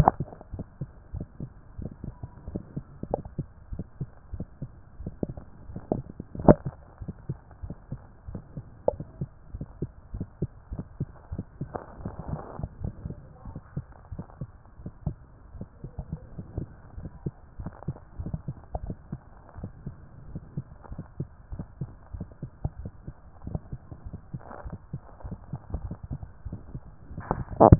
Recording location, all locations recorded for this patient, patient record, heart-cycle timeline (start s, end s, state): mitral valve (MV)
aortic valve (AV)+pulmonary valve (PV)+tricuspid valve (TV)+mitral valve (MV)+mitral valve (MV)
#Age: Adolescent
#Sex: Male
#Height: 150.0 cm
#Weight: 41.1 kg
#Pregnancy status: False
#Murmur: Absent
#Murmur locations: nan
#Most audible location: nan
#Systolic murmur timing: nan
#Systolic murmur shape: nan
#Systolic murmur grading: nan
#Systolic murmur pitch: nan
#Systolic murmur quality: nan
#Diastolic murmur timing: nan
#Diastolic murmur shape: nan
#Diastolic murmur grading: nan
#Diastolic murmur pitch: nan
#Diastolic murmur quality: nan
#Outcome: Normal
#Campaign: 2014 screening campaign
0.00	0.52	unannotated
0.52	0.64	S1
0.64	0.80	systole
0.80	0.90	S2
0.90	1.14	diastole
1.14	1.26	S1
1.26	1.40	systole
1.40	1.50	S2
1.50	1.78	diastole
1.78	1.90	S1
1.90	2.04	systole
2.04	2.14	S2
2.14	2.50	diastole
2.50	2.62	S1
2.62	2.76	systole
2.76	2.84	S2
2.84	3.10	diastole
3.10	3.22	S1
3.22	3.38	systole
3.38	3.46	S2
3.46	3.72	diastole
3.72	3.84	S1
3.84	4.00	systole
4.00	4.08	S2
4.08	4.34	diastole
4.34	4.46	S1
4.46	4.60	systole
4.60	4.70	S2
4.70	5.00	diastole
5.00	5.12	S1
5.12	5.26	systole
5.26	5.36	S2
5.36	5.68	diastole
5.68	27.79	unannotated